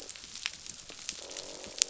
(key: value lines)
label: biophony, croak
recorder: SoundTrap 500